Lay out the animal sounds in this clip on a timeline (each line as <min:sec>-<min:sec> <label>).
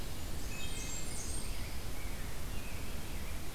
0:00.0-0:01.8 Blackburnian Warbler (Setophaga fusca)
0:00.4-0:01.3 Wood Thrush (Hylocichla mustelina)
0:01.3-0:03.5 Rose-breasted Grosbeak (Pheucticus ludovicianus)